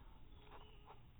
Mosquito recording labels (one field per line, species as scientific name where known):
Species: mosquito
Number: one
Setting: cup